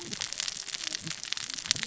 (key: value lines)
label: biophony, cascading saw
recorder: SoundTrap 600 or HydroMoth